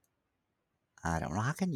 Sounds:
Sneeze